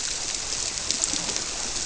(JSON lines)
{"label": "biophony", "recorder": "SoundTrap 300"}